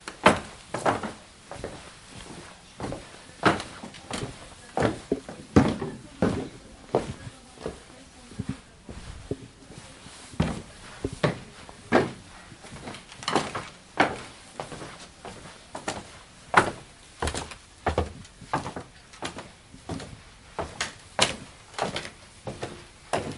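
0.1s Footsteps on an old wooden floor. 7.8s
10.3s Footsteps on an old wooden floor. 12.3s
13.2s Footsteps on an old wooden floor. 23.4s

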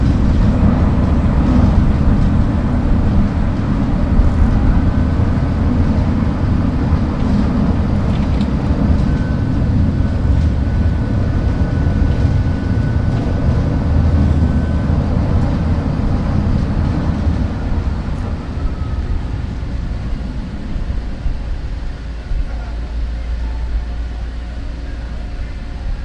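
0.1s A city train arrives at a station and slows down until it stops. 26.0s

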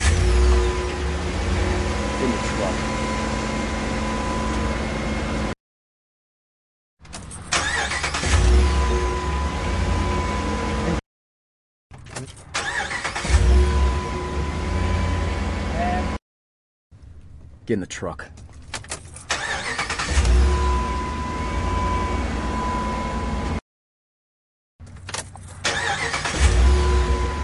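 0.0s A loud vehicle with a non-electric engine is starting. 5.7s
2.3s A man is speaking. 3.2s
6.9s A loud vehicle with a non-electric engine is starting. 11.0s
10.7s An interrupted human voice is heard. 11.0s
11.9s A loud vehicle with a non-electric engine is starting. 16.3s
12.0s An interrupted human voice is heard. 12.5s
12.0s Partially clear human speech with a neutral tone. 12.5s
15.6s An interrupted human voice is heard. 16.3s
17.2s A loud vehicle with a non-electric engine is starting. 23.7s
17.3s A man speaks in a demanding and subtly hostile tone. 18.8s
24.7s A loud vehicle with a non-electric engine is starting. 27.4s

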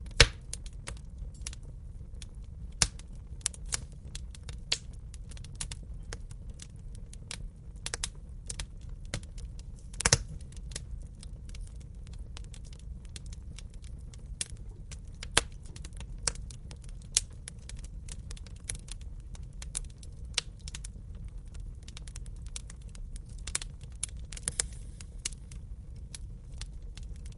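0.1s Fire is crackling. 27.2s

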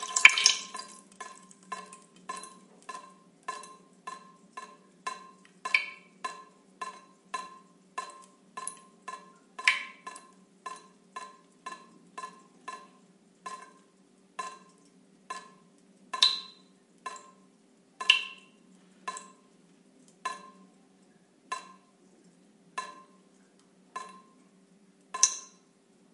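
0.0s Water dripping repeatedly and fading out. 26.1s

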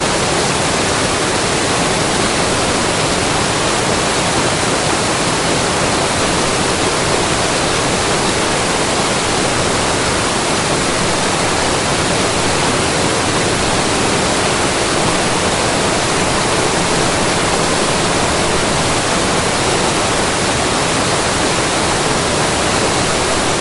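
0.0s A waterfall. 23.6s

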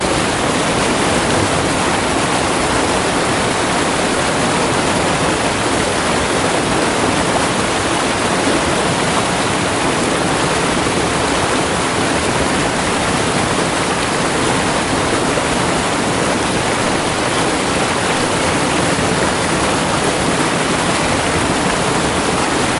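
0.0s A river flows rapidly, producing a loud, continuous rushing sound. 22.8s

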